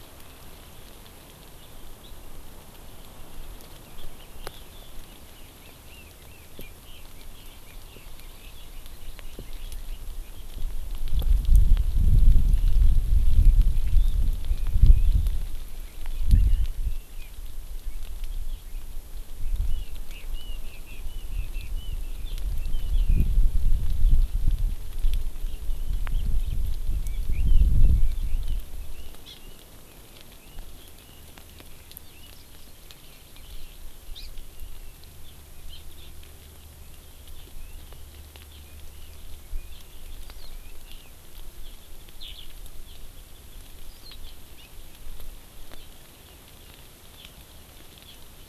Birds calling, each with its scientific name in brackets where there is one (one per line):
Hawaii Amakihi (Chlorodrepanis virens)
Eurasian Skylark (Alauda arvensis)
Red-billed Leiothrix (Leiothrix lutea)